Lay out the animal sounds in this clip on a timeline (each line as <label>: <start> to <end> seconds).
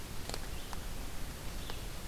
Red-eyed Vireo (Vireo olivaceus): 0.0 to 2.1 seconds